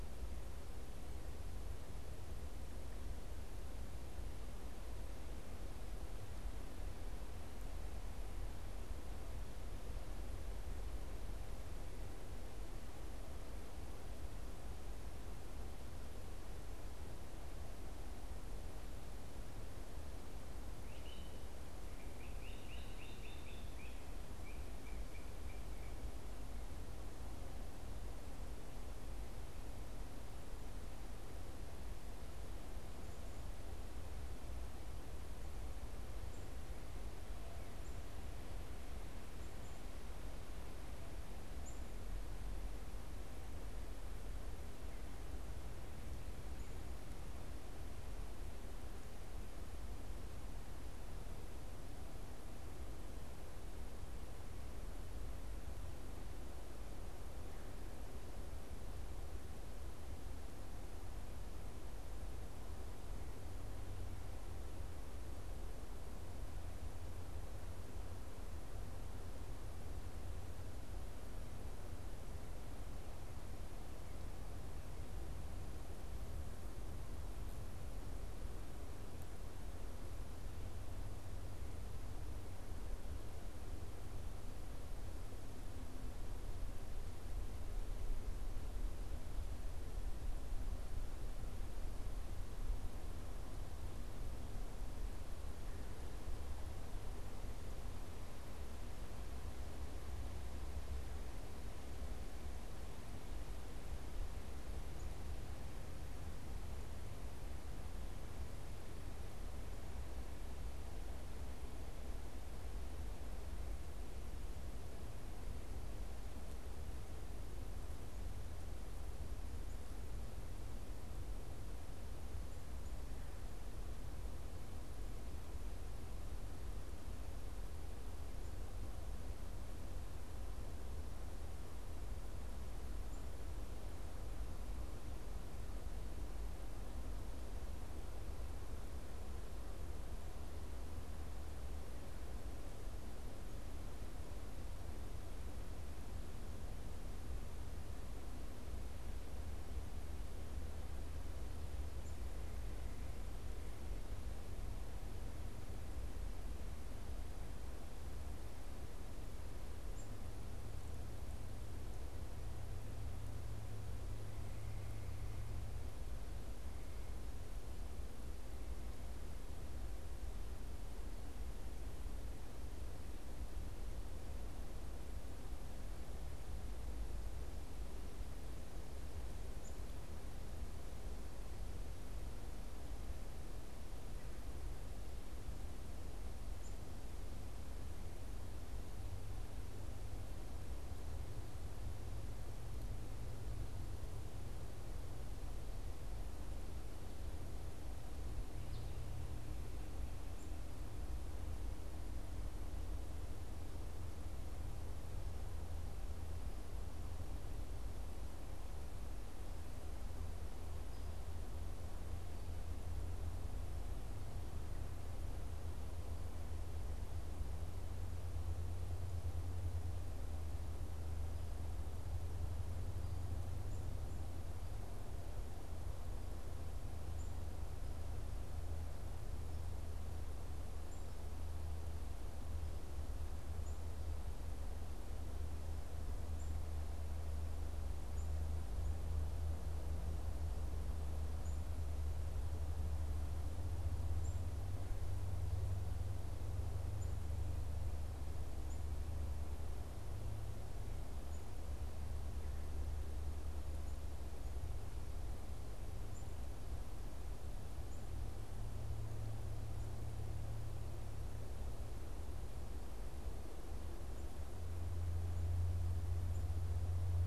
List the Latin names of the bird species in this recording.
Myiarchus crinitus, Poecile atricapillus, Spinus tristis